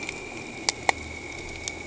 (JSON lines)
{"label": "anthrophony, boat engine", "recorder": "HydroMoth"}